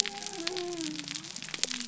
{"label": "biophony", "recorder": "SoundTrap 300"}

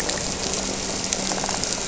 {"label": "anthrophony, boat engine", "recorder": "SoundTrap 300"}
{"label": "biophony", "recorder": "SoundTrap 300"}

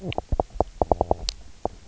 {"label": "biophony, knock croak", "recorder": "SoundTrap 300"}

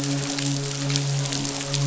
{"label": "biophony, midshipman", "recorder": "SoundTrap 500"}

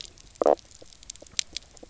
{"label": "biophony, knock croak", "recorder": "SoundTrap 300"}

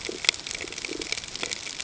{"label": "ambient", "recorder": "HydroMoth"}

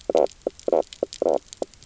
{"label": "biophony, knock croak", "recorder": "SoundTrap 300"}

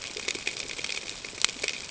{"label": "ambient", "recorder": "HydroMoth"}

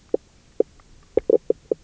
{"label": "biophony, knock croak", "recorder": "SoundTrap 300"}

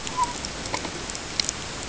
{"label": "ambient", "recorder": "HydroMoth"}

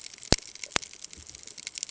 {"label": "ambient", "recorder": "HydroMoth"}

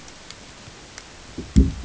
{"label": "ambient", "recorder": "HydroMoth"}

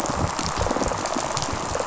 {"label": "biophony, rattle response", "recorder": "SoundTrap 500"}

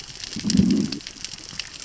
{"label": "biophony, growl", "recorder": "SoundTrap 600 or HydroMoth"}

